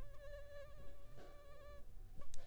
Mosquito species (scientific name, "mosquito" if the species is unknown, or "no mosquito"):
Anopheles arabiensis